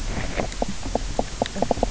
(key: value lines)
label: biophony, knock croak
recorder: SoundTrap 300